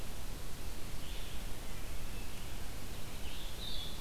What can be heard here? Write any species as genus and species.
Vireo solitarius